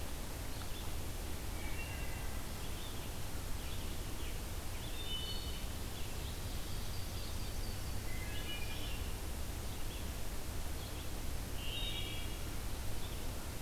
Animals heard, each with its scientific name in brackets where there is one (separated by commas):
Yellow-rumped Warbler (Setophaga coronata), Red-eyed Vireo (Vireo olivaceus), Wood Thrush (Hylocichla mustelina)